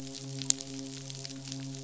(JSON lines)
{"label": "biophony, midshipman", "recorder": "SoundTrap 500"}